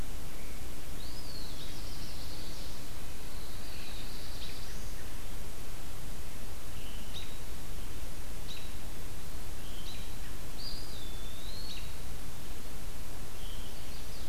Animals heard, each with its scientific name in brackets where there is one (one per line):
American Robin (Turdus migratorius)
Eastern Wood-Pewee (Contopus virens)
Black-throated Blue Warbler (Setophaga caerulescens)
Veery (Catharus fuscescens)